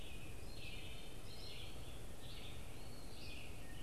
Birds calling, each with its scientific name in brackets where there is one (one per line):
Wood Thrush (Hylocichla mustelina)
Red-eyed Vireo (Vireo olivaceus)
American Robin (Turdus migratorius)